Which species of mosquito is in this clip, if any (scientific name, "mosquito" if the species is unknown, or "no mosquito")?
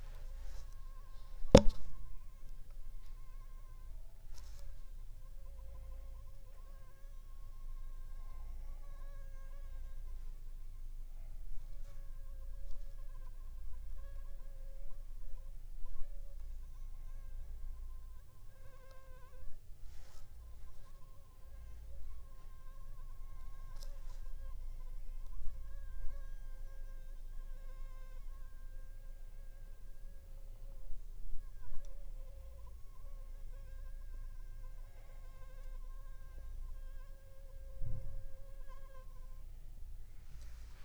Anopheles funestus s.s.